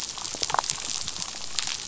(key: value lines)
label: biophony, damselfish
recorder: SoundTrap 500